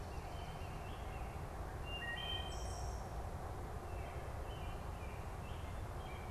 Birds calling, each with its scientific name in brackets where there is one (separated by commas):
Swamp Sparrow (Melospiza georgiana), Wood Thrush (Hylocichla mustelina), American Robin (Turdus migratorius)